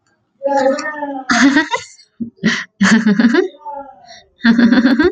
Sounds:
Laughter